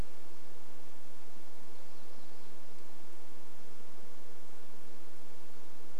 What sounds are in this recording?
warbler song